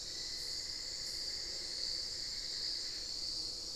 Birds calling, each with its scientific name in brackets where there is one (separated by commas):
Cinnamon-throated Woodcreeper (Dendrexetastes rufigula), Hauxwell's Thrush (Turdus hauxwelli)